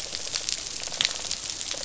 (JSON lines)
{"label": "biophony, rattle response", "recorder": "SoundTrap 500"}